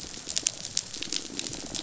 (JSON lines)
{"label": "biophony", "recorder": "SoundTrap 500"}